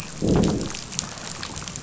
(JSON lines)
{"label": "biophony, growl", "recorder": "SoundTrap 500"}